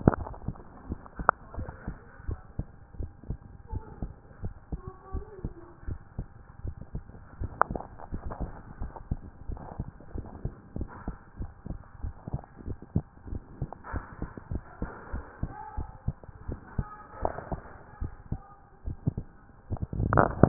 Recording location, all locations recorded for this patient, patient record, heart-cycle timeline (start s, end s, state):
tricuspid valve (TV)
pulmonary valve (PV)+tricuspid valve (TV)+mitral valve (MV)
#Age: Child
#Sex: Male
#Height: 149.0 cm
#Weight: 36.1 kg
#Pregnancy status: False
#Murmur: Absent
#Murmur locations: nan
#Most audible location: nan
#Systolic murmur timing: nan
#Systolic murmur shape: nan
#Systolic murmur grading: nan
#Systolic murmur pitch: nan
#Systolic murmur quality: nan
#Diastolic murmur timing: nan
#Diastolic murmur shape: nan
#Diastolic murmur grading: nan
#Diastolic murmur pitch: nan
#Diastolic murmur quality: nan
#Outcome: Abnormal
#Campaign: 2014 screening campaign
0.00	0.18	diastole
0.18	0.28	S1
0.28	0.46	systole
0.46	0.56	S2
0.56	0.88	diastole
0.88	0.98	S1
0.98	1.18	systole
1.18	1.28	S2
1.28	1.56	diastole
1.56	1.68	S1
1.68	1.86	systole
1.86	1.96	S2
1.96	2.26	diastole
2.26	2.40	S1
2.40	2.58	systole
2.58	2.66	S2
2.66	2.98	diastole
2.98	3.10	S1
3.10	3.28	systole
3.28	3.38	S2
3.38	3.72	diastole
3.72	3.84	S1
3.84	4.00	systole
4.00	4.12	S2
4.12	4.42	diastole
4.42	4.54	S1
4.54	4.70	systole
4.70	4.80	S2
4.80	5.12	diastole
5.12	5.24	S1
5.24	5.42	systole
5.42	5.52	S2
5.52	5.88	diastole
5.88	6.00	S1
6.00	6.18	systole
6.18	6.26	S2
6.26	6.64	diastole
6.64	6.76	S1
6.76	6.94	systole
6.94	7.02	S2
7.02	7.40	diastole
7.40	7.52	S1
7.52	7.70	systole
7.70	7.80	S2
7.80	8.12	diastole
8.12	8.30	S1
8.30	8.40	systole
8.40	8.50	S2
8.50	8.80	diastole
8.80	8.92	S1
8.92	9.10	systole
9.10	9.20	S2
9.20	9.48	diastole
9.48	9.60	S1
9.60	9.78	systole
9.78	9.88	S2
9.88	10.14	diastole
10.14	10.26	S1
10.26	10.44	systole
10.44	10.52	S2
10.52	10.76	diastole
10.76	10.88	S1
10.88	11.06	systole
11.06	11.16	S2
11.16	11.38	diastole
11.38	11.50	S1
11.50	11.68	systole
11.68	11.78	S2
11.78	12.02	diastole
12.02	12.14	S1
12.14	12.32	systole
12.32	12.42	S2
12.42	12.66	diastole
12.66	12.78	S1
12.78	12.94	systole
12.94	13.04	S2
13.04	13.30	diastole
13.30	13.42	S1
13.42	13.60	systole
13.60	13.70	S2
13.70	13.92	diastole
13.92	14.04	S1
14.04	14.20	systole
14.20	14.30	S2
14.30	14.50	diastole
14.50	14.62	S1
14.62	14.80	systole
14.80	14.90	S2
14.90	15.12	diastole
15.12	15.24	S1
15.24	15.42	systole
15.42	15.52	S2
15.52	15.76	diastole
15.76	15.88	S1
15.88	16.06	systole
16.06	16.16	S2
16.16	16.48	diastole
16.48	16.60	S1
16.60	16.76	systole
16.76	16.86	S2
16.86	17.22	diastole
17.22	17.34	S1
17.34	17.50	systole
17.50	17.60	S2
17.60	18.00	diastole
18.00	18.12	S1
18.12	18.30	systole
18.30	18.40	S2
18.40	18.86	diastole
18.86	18.98	S1
18.98	19.16	systole
19.16	19.24	S2
19.24	19.74	diastole
19.74	19.80	S1
19.80	19.96	systole
19.96	20.02	S2
20.02	20.26	diastole
20.26	20.28	S1
20.28	20.40	systole
20.40	20.48	S2